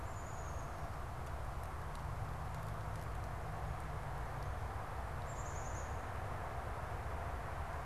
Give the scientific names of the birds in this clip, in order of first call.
Poecile atricapillus